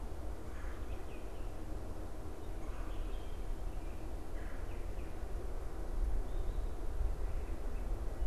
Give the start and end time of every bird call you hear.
0.4s-4.9s: Red-bellied Woodpecker (Melanerpes carolinus)

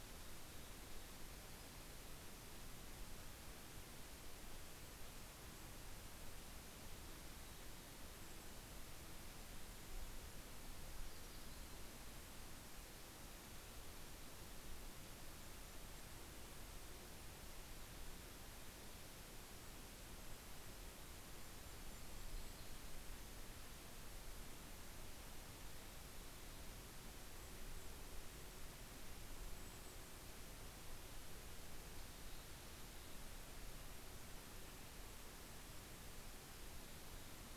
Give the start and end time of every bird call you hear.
0.0s-1.5s: Mountain Chickadee (Poecile gambeli)
4.9s-6.1s: Golden-crowned Kinglet (Regulus satrapa)
6.5s-8.1s: Mountain Chickadee (Poecile gambeli)
7.7s-10.7s: Golden-crowned Kinglet (Regulus satrapa)
10.7s-12.5s: Yellow-rumped Warbler (Setophaga coronata)
11.3s-13.1s: Golden-crowned Kinglet (Regulus satrapa)
15.0s-17.2s: Golden-crowned Kinglet (Regulus satrapa)
19.0s-23.7s: Golden-crowned Kinglet (Regulus satrapa)
21.1s-23.8s: Yellow-rumped Warbler (Setophaga coronata)
26.4s-30.7s: Golden-crowned Kinglet (Regulus satrapa)
31.7s-33.4s: Mountain Chickadee (Poecile gambeli)
34.4s-36.6s: Golden-crowned Kinglet (Regulus satrapa)

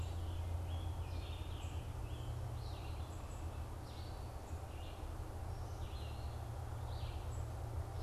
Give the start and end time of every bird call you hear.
0.0s-8.0s: Red-eyed Vireo (Vireo olivaceus)
0.6s-2.3s: Scarlet Tanager (Piranga olivacea)
1.4s-8.0s: unidentified bird

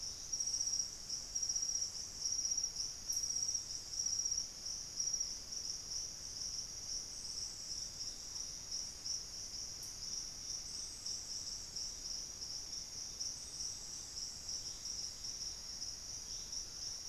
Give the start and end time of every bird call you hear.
2.2s-9.6s: Thrush-like Wren (Campylorhynchus turdinus)

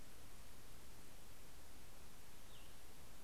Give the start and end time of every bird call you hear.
2.0s-3.1s: Cassin's Vireo (Vireo cassinii)

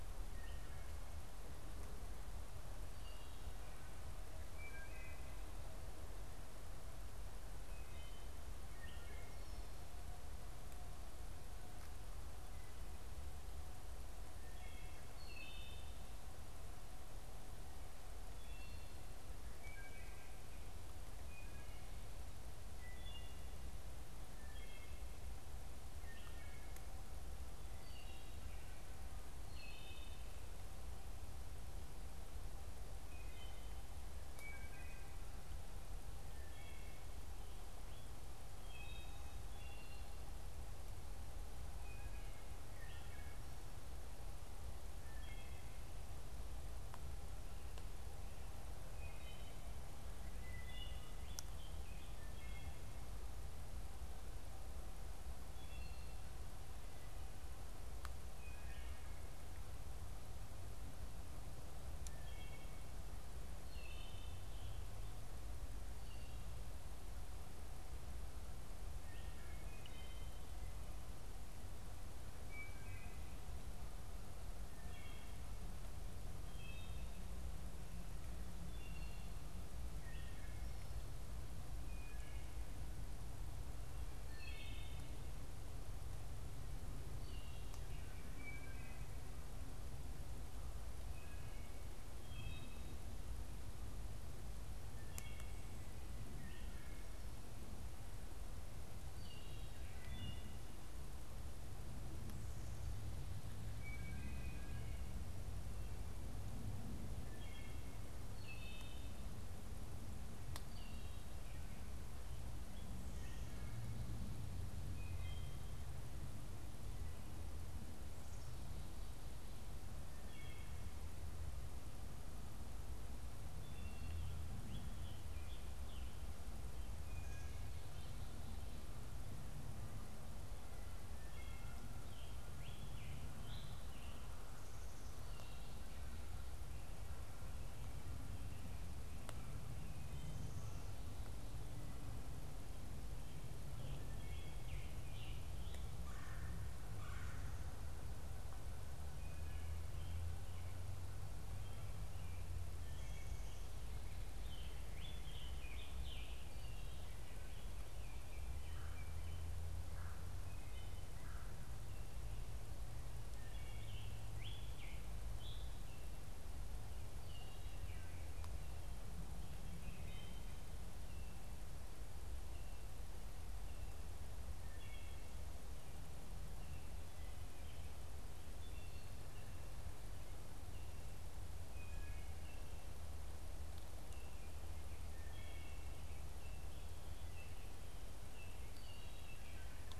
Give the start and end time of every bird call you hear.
2.8s-5.5s: Wood Thrush (Hylocichla mustelina)
7.5s-9.5s: Wood Thrush (Hylocichla mustelina)
14.2s-16.0s: Wood Thrush (Hylocichla mustelina)
18.3s-35.2s: Wood Thrush (Hylocichla mustelina)
36.2s-45.9s: Wood Thrush (Hylocichla mustelina)
48.8s-51.0s: Wood Thrush (Hylocichla mustelina)
51.1s-52.5s: Scarlet Tanager (Piranga olivacea)
52.2s-63.1s: Wood Thrush (Hylocichla mustelina)
63.4s-64.8s: Wood Thrush (Hylocichla mustelina)
68.9s-73.5s: Wood Thrush (Hylocichla mustelina)
74.5s-88.1s: Wood Thrush (Hylocichla mustelina)
88.4s-100.7s: Wood Thrush (Hylocichla mustelina)
103.6s-116.0s: Wood Thrush (Hylocichla mustelina)
120.0s-124.4s: Wood Thrush (Hylocichla mustelina)
124.6s-126.2s: Scarlet Tanager (Piranga olivacea)
126.9s-127.8s: Wood Thrush (Hylocichla mustelina)
131.0s-132.0s: Wood Thrush (Hylocichla mustelina)
132.0s-134.4s: Scarlet Tanager (Piranga olivacea)
143.3s-146.0s: Scarlet Tanager (Piranga olivacea)
145.9s-147.9s: Red-bellied Woodpecker (Melanerpes carolinus)
149.0s-149.9s: Wood Thrush (Hylocichla mustelina)
151.1s-152.8s: American Robin (Turdus migratorius)
152.7s-153.6s: Wood Thrush (Hylocichla mustelina)
154.2s-157.3s: Scarlet Tanager (Piranga olivacea)
157.5s-159.7s: Baltimore Oriole (Icterus galbula)
158.6s-162.0s: Red-bellied Woodpecker (Melanerpes carolinus)
163.4s-166.1s: Scarlet Tanager (Piranga olivacea)
167.2s-168.2s: Wood Thrush (Hylocichla mustelina)
169.7s-170.6s: Wood Thrush (Hylocichla mustelina)
174.4s-179.4s: Wood Thrush (Hylocichla mustelina)
181.8s-190.0s: Wood Thrush (Hylocichla mustelina)
184.0s-190.0s: unidentified bird

